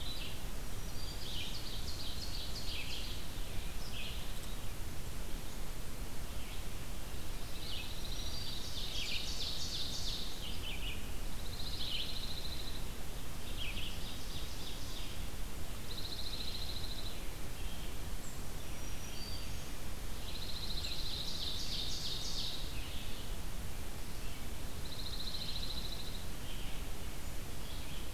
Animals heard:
Red-eyed Vireo (Vireo olivaceus), Dark-eyed Junco (Junco hyemalis), Black-throated Green Warbler (Setophaga virens), Ovenbird (Seiurus aurocapilla)

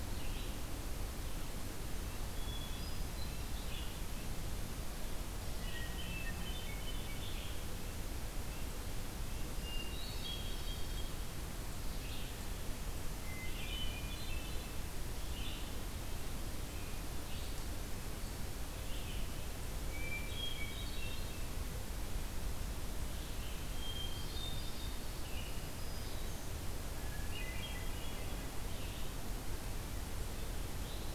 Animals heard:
Hermit Thrush (Catharus guttatus), Black-throated Green Warbler (Setophaga virens), Red-eyed Vireo (Vireo olivaceus)

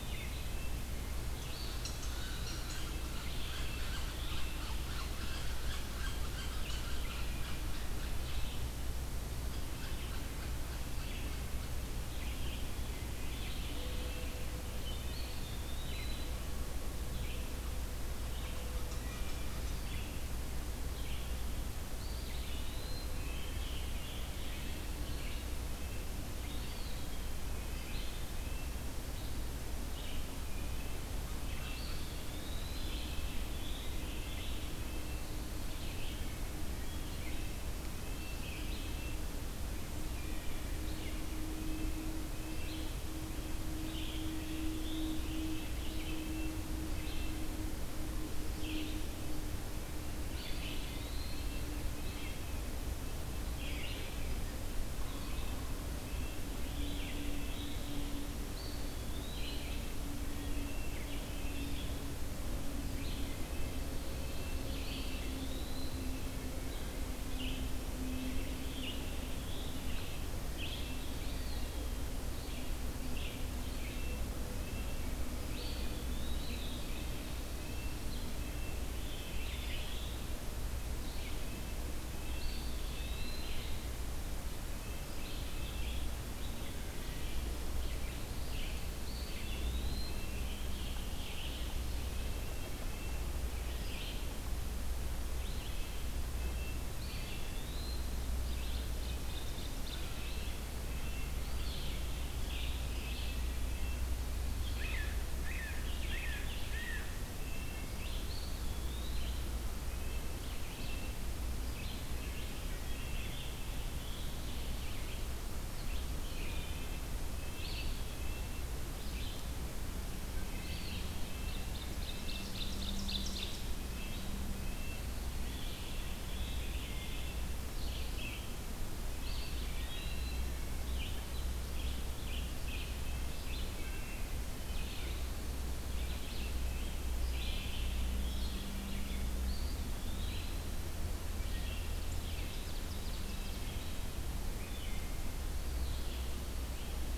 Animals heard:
Wood Thrush (Hylocichla mustelina), Pine Warbler (Setophaga pinus), Eastern Wood-Pewee (Contopus virens), unknown mammal, Red-breasted Nuthatch (Sitta canadensis), Blue Jay (Cyanocitta cristata), Red-eyed Vireo (Vireo olivaceus), Ovenbird (Seiurus aurocapilla), Scarlet Tanager (Piranga olivacea)

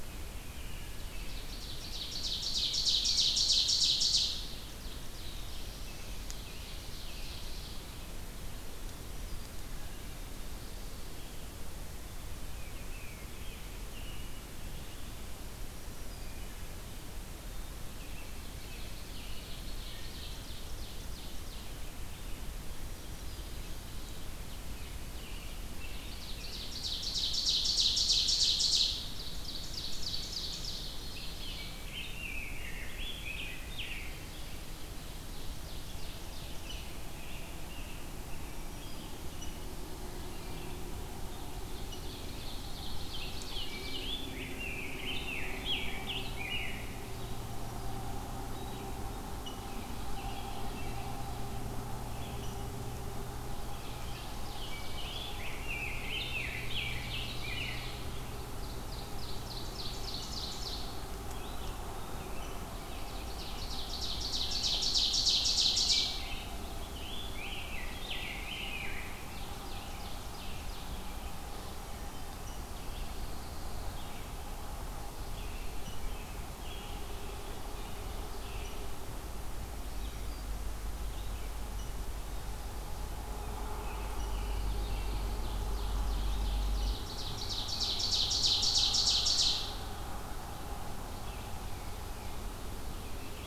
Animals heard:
Wood Thrush (Hylocichla mustelina), Red-eyed Vireo (Vireo olivaceus), Black-throated Green Warbler (Setophaga virens), Rose-breasted Grosbeak (Pheucticus ludovicianus), Ovenbird (Seiurus aurocapilla), Pine Warbler (Setophaga pinus), Black-throated Blue Warbler (Setophaga caerulescens), American Robin (Turdus migratorius), Tufted Titmouse (Baeolophus bicolor)

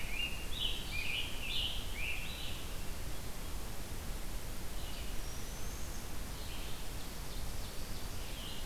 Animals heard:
Scarlet Tanager (Piranga olivacea), Black-throated Green Warbler (Setophaga virens), Ovenbird (Seiurus aurocapilla), Red-eyed Vireo (Vireo olivaceus)

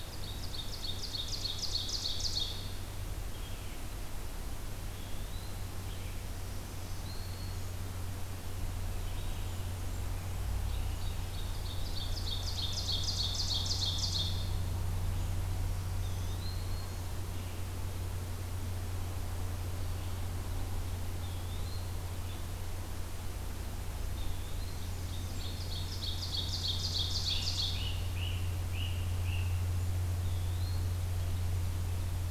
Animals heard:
Black-throated Green Warbler (Setophaga virens), Blackburnian Warbler (Setophaga fusca), Red-eyed Vireo (Vireo olivaceus), Great Crested Flycatcher (Myiarchus crinitus), Eastern Wood-Pewee (Contopus virens), Ovenbird (Seiurus aurocapilla)

